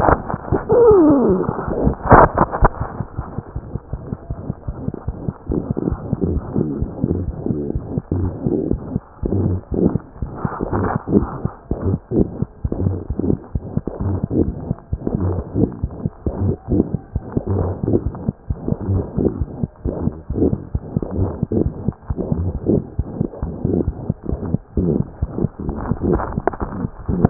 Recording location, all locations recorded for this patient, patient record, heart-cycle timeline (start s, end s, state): mitral valve (MV)
aortic valve (AV)+mitral valve (MV)
#Age: Infant
#Sex: Male
#Height: 54.0 cm
#Weight: 3.7 kg
#Pregnancy status: False
#Murmur: Present
#Murmur locations: aortic valve (AV)+mitral valve (MV)
#Most audible location: aortic valve (AV)
#Systolic murmur timing: Holosystolic
#Systolic murmur shape: Plateau
#Systolic murmur grading: I/VI
#Systolic murmur pitch: High
#Systolic murmur quality: Harsh
#Diastolic murmur timing: nan
#Diastolic murmur shape: nan
#Diastolic murmur grading: nan
#Diastolic murmur pitch: nan
#Diastolic murmur quality: nan
#Outcome: Abnormal
#Campaign: 2015 screening campaign
0.00	3.14	unannotated
3.14	3.26	S1
3.26	3.35	systole
3.35	3.43	S2
3.43	3.52	diastole
3.52	3.62	S1
3.62	3.72	systole
3.72	3.81	S2
3.81	3.90	diastole
3.90	3.99	S1
3.99	4.09	systole
4.09	4.19	S2
4.19	4.28	diastole
4.28	4.38	S1
4.38	4.47	systole
4.47	4.54	S2
4.54	4.66	diastole
4.66	4.74	S1
4.74	4.83	systole
4.83	4.93	S2
4.93	5.05	diastole
5.05	5.14	S1
5.14	5.24	systole
5.24	5.33	S2
5.33	27.30	unannotated